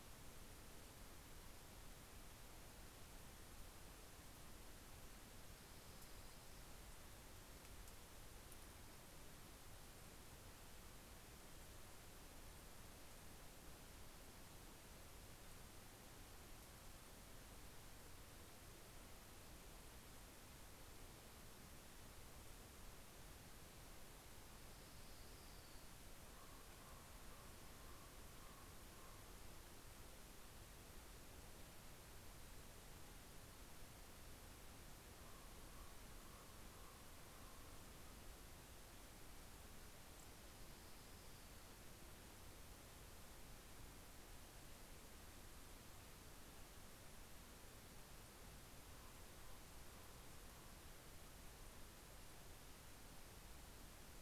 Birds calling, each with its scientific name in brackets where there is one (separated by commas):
Common Raven (Corvus corax), Orange-crowned Warbler (Leiothlypis celata)